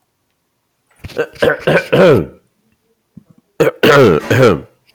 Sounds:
Throat clearing